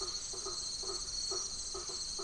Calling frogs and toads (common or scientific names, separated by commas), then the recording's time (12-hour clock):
Crubixa snouted tree frog, blacksmith tree frog
9:30pm